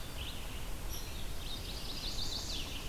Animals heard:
Red-eyed Vireo (Vireo olivaceus), Chestnut-sided Warbler (Setophaga pensylvanica), Hairy Woodpecker (Dryobates villosus)

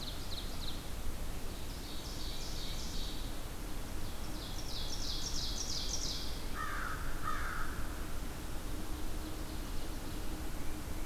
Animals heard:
Ovenbird (Seiurus aurocapilla), American Crow (Corvus brachyrhynchos)

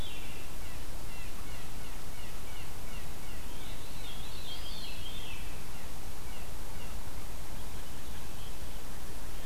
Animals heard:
Eastern Wood-Pewee (Contopus virens), Veery (Catharus fuscescens), Blue Jay (Cyanocitta cristata)

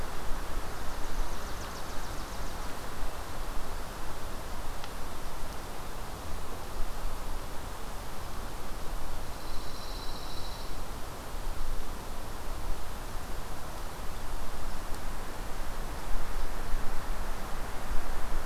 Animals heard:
Pine Warbler (Setophaga pinus), Chipping Sparrow (Spizella passerina)

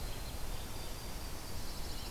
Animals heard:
Black-capped Chickadee (Poecile atricapillus), Pine Warbler (Setophaga pinus), Red-eyed Vireo (Vireo olivaceus), Yellow-rumped Warbler (Setophaga coronata)

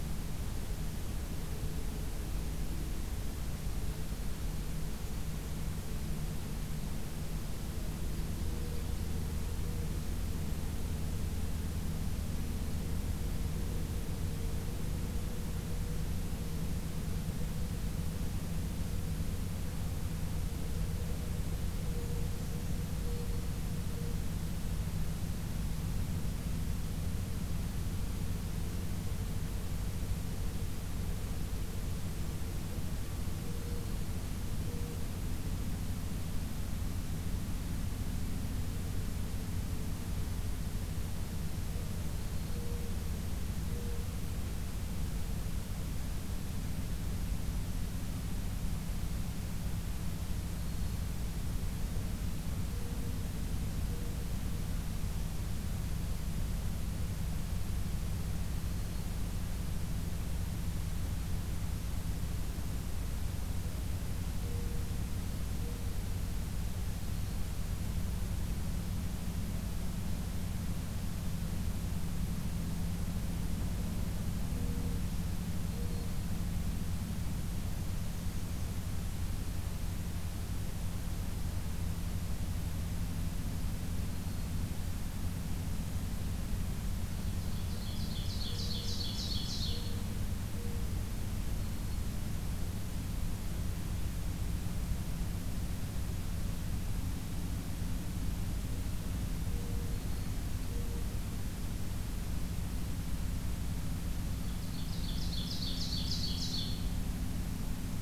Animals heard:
Black-throated Green Warbler (Setophaga virens), Mourning Dove (Zenaida macroura), Ovenbird (Seiurus aurocapilla)

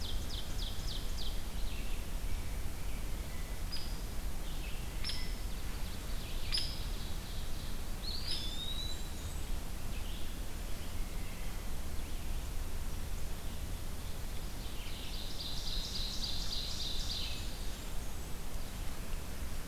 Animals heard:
Blackburnian Warbler (Setophaga fusca), Eastern Wood-Pewee (Contopus virens), Ovenbird (Seiurus aurocapilla), Hairy Woodpecker (Dryobates villosus), Red-eyed Vireo (Vireo olivaceus)

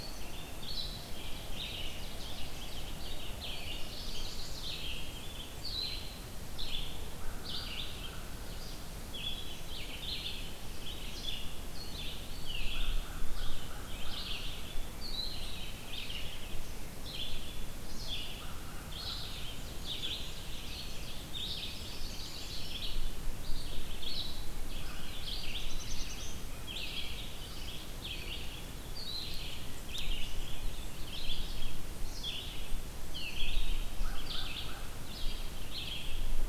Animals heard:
Red-eyed Vireo (Vireo olivaceus), Ovenbird (Seiurus aurocapilla), Black-throated Blue Warbler (Setophaga caerulescens), Chestnut-sided Warbler (Setophaga pensylvanica), American Crow (Corvus brachyrhynchos)

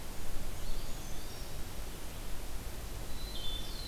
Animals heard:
Eastern Wood-Pewee (Contopus virens), Brown Creeper (Certhia americana), Wood Thrush (Hylocichla mustelina)

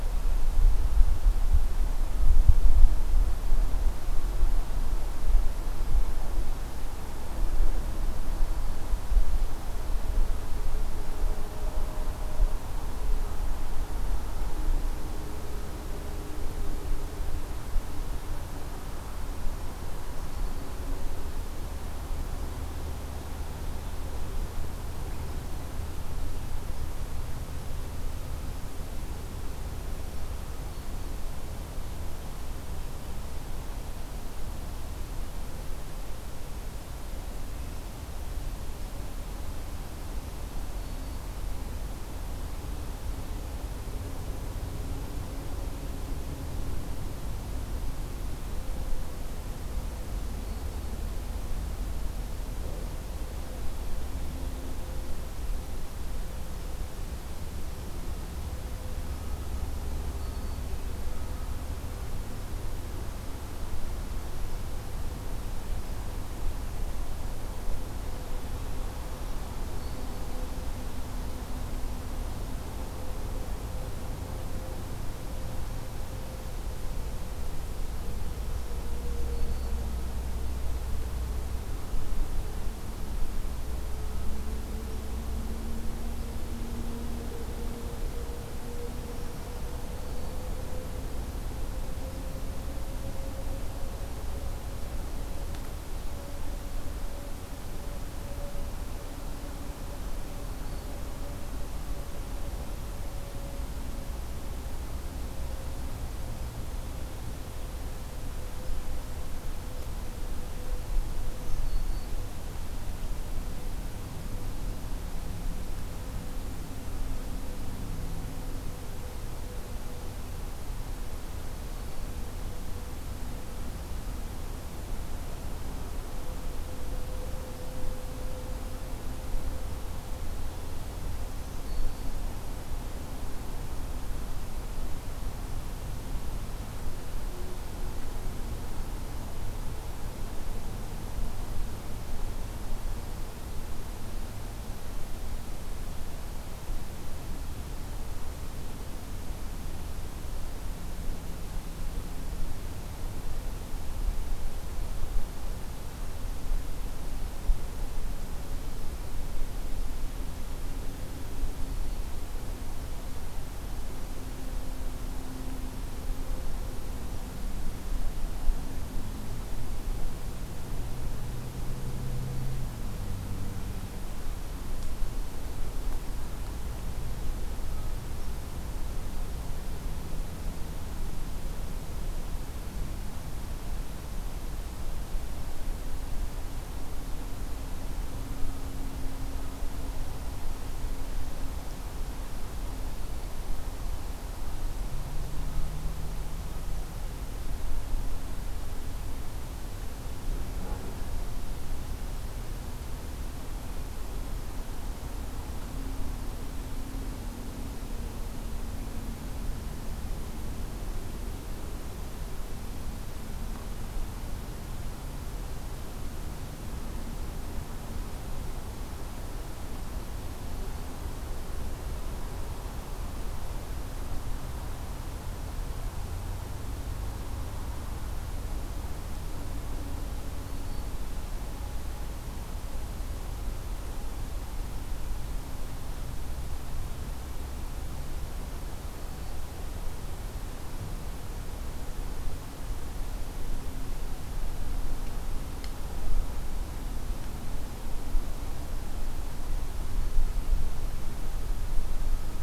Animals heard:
Black-throated Green Warbler (Setophaga virens)

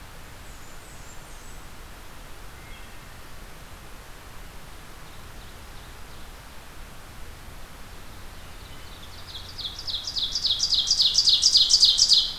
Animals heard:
Blackburnian Warbler (Setophaga fusca), Ovenbird (Seiurus aurocapilla)

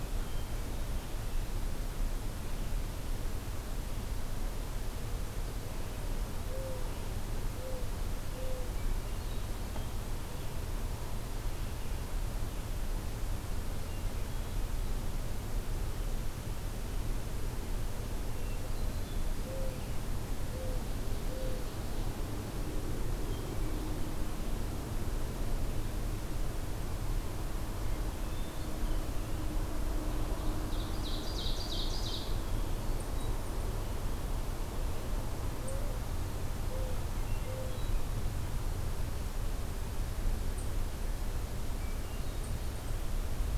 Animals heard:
Mourning Dove (Zenaida macroura), Ovenbird (Seiurus aurocapilla), Hermit Thrush (Catharus guttatus)

